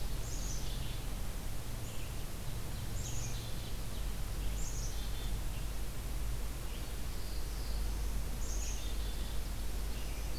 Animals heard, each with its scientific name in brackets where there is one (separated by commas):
Red-eyed Vireo (Vireo olivaceus), Ovenbird (Seiurus aurocapilla), Black-throated Blue Warbler (Setophaga caerulescens), Black-capped Chickadee (Poecile atricapillus)